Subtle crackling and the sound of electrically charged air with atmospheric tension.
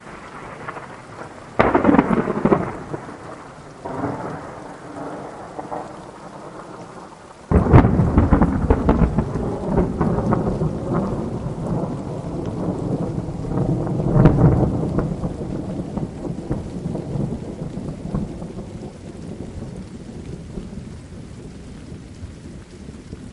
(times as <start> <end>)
0.0 1.6